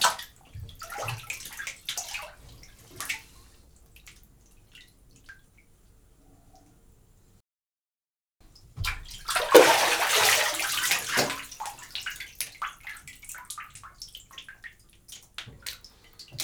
Is someone crying?
no